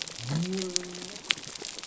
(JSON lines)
{"label": "biophony", "recorder": "SoundTrap 300"}